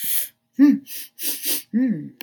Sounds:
Sniff